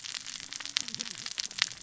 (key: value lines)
label: biophony, cascading saw
recorder: SoundTrap 600 or HydroMoth